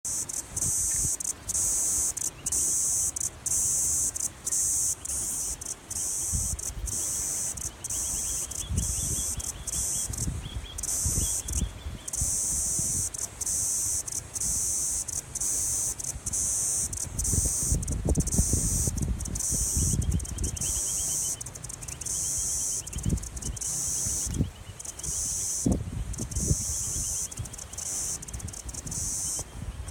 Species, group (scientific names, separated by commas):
Atrapsalta corticina, Cicadidae